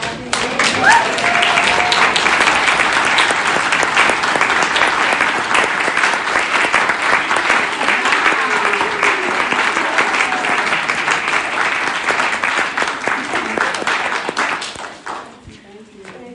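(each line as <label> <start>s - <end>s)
A crowd applauds. 0.0s - 16.3s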